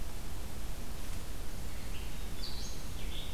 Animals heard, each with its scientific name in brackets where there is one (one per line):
Red-eyed Vireo (Vireo olivaceus)